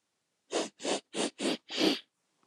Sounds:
Sniff